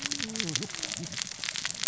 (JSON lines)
{"label": "biophony, cascading saw", "recorder": "SoundTrap 600 or HydroMoth"}